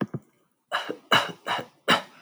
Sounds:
Cough